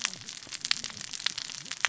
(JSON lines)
{"label": "biophony, cascading saw", "recorder": "SoundTrap 600 or HydroMoth"}